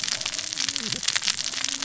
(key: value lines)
label: biophony, cascading saw
recorder: SoundTrap 600 or HydroMoth